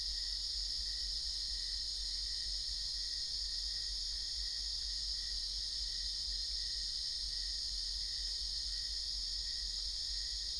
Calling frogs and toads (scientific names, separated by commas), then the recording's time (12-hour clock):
none
2:00am